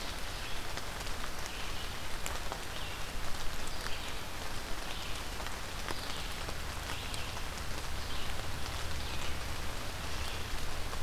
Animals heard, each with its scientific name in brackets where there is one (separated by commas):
Red-eyed Vireo (Vireo olivaceus)